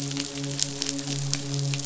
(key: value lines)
label: biophony, midshipman
recorder: SoundTrap 500